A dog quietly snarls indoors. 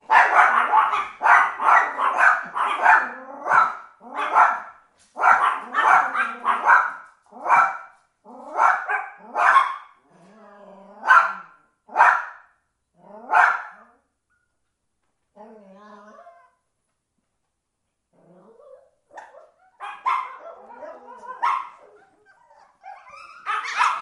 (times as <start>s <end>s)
15.1s 16.9s